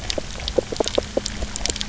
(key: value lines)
label: anthrophony, boat engine
recorder: SoundTrap 300